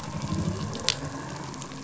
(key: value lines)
label: anthrophony, boat engine
recorder: SoundTrap 500